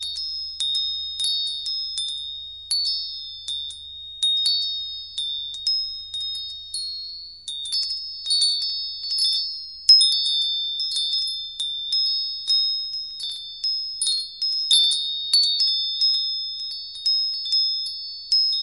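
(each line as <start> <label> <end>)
0.0 Multiple bells ringing rhythmically and loudly with a very high pitch nearby. 18.6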